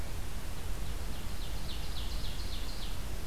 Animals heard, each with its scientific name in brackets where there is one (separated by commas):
Ovenbird (Seiurus aurocapilla)